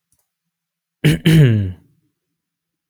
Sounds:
Throat clearing